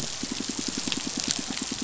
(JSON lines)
{"label": "biophony, pulse", "recorder": "SoundTrap 500"}